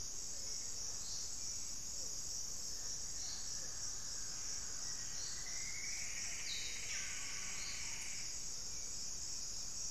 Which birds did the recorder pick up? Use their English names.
Hauxwell's Thrush, Mealy Parrot, Black-faced Antthrush, Plumbeous Antbird, unidentified bird